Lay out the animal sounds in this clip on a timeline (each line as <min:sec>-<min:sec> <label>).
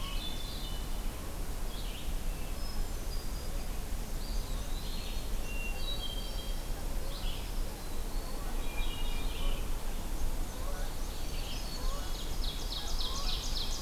0:00.0-0:00.5 Ovenbird (Seiurus aurocapilla)
0:00.0-0:00.7 Hermit Thrush (Catharus guttatus)
0:00.0-0:13.8 Red-eyed Vireo (Vireo olivaceus)
0:02.4-0:03.7 Hermit Thrush (Catharus guttatus)
0:03.9-0:05.4 Eastern Wood-Pewee (Contopus virens)
0:05.4-0:06.7 Hermit Thrush (Catharus guttatus)
0:08.4-0:09.5 Hermit Thrush (Catharus guttatus)
0:09.8-0:13.8 Canada Goose (Branta canadensis)
0:10.0-0:12.4 Black-and-white Warbler (Mniotilta varia)
0:12.0-0:13.8 Ovenbird (Seiurus aurocapilla)